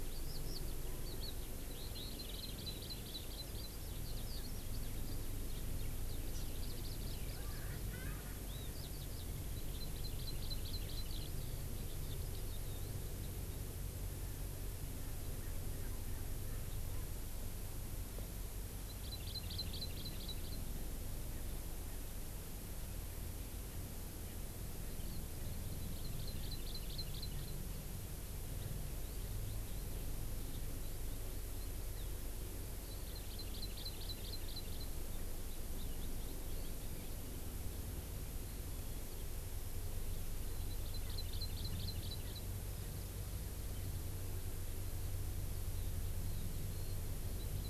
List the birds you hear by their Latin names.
Alauda arvensis, Chlorodrepanis virens, Pternistis erckelii